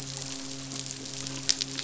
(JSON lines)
{"label": "biophony, midshipman", "recorder": "SoundTrap 500"}